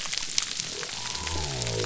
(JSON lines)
{"label": "biophony", "recorder": "SoundTrap 300"}